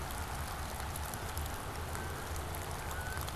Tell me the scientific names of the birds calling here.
Branta canadensis